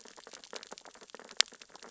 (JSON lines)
{"label": "biophony, sea urchins (Echinidae)", "recorder": "SoundTrap 600 or HydroMoth"}